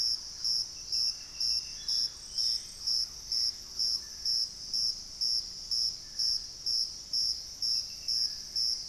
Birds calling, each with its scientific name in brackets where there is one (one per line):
Dusky-throated Antshrike (Thamnomanes ardesiacus)
Thrush-like Wren (Campylorhynchus turdinus)
Ringed Antpipit (Corythopis torquatus)
Gray Antbird (Cercomacra cinerascens)